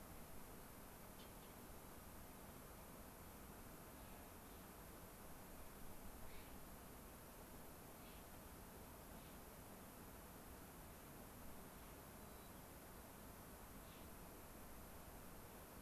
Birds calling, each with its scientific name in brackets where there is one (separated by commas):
White-crowned Sparrow (Zonotrichia leucophrys), Clark's Nutcracker (Nucifraga columbiana)